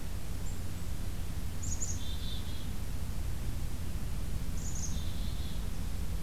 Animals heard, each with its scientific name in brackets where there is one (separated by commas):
Black-capped Chickadee (Poecile atricapillus)